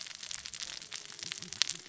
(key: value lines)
label: biophony, cascading saw
recorder: SoundTrap 600 or HydroMoth